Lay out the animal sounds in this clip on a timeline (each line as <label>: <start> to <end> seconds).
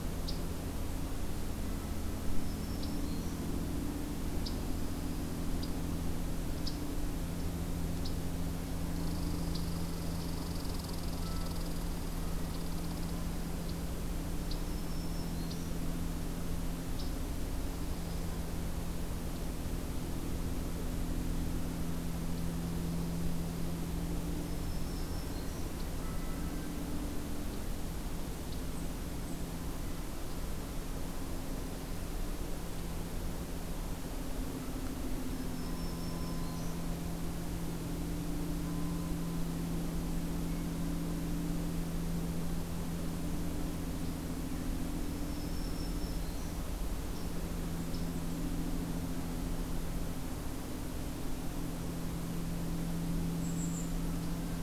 Black-throated Green Warbler (Setophaga virens): 2.1 to 3.5 seconds
Dark-eyed Junco (Junco hyemalis): 4.3 to 5.9 seconds
Red Squirrel (Tamiasciurus hudsonicus): 8.8 to 13.9 seconds
Black-throated Green Warbler (Setophaga virens): 14.4 to 15.8 seconds
Dark-eyed Junco (Junco hyemalis): 17.4 to 18.4 seconds
Dark-eyed Junco (Junco hyemalis): 22.3 to 23.5 seconds
Black-throated Green Warbler (Setophaga virens): 24.2 to 25.7 seconds
Golden-crowned Kinglet (Regulus satrapa): 28.2 to 29.5 seconds
Black-throated Green Warbler (Setophaga virens): 35.1 to 36.9 seconds
Black-throated Green Warbler (Setophaga virens): 44.9 to 46.6 seconds
Golden-crowned Kinglet (Regulus satrapa): 53.4 to 53.9 seconds